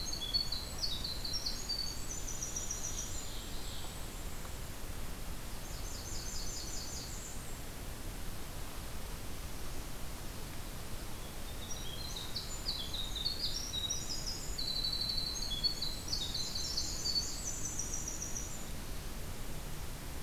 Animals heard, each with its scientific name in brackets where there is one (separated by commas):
Blackburnian Warbler (Setophaga fusca), Golden-crowned Kinglet (Regulus satrapa), Ovenbird (Seiurus aurocapilla), Winter Wren (Troglodytes hiemalis)